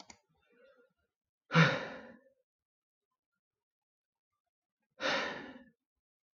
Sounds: Sigh